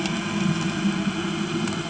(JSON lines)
{"label": "anthrophony, boat engine", "recorder": "HydroMoth"}